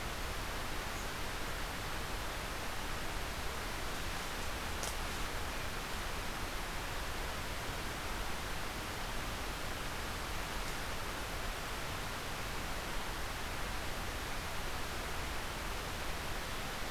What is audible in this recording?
forest ambience